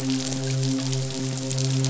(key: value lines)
label: biophony, midshipman
recorder: SoundTrap 500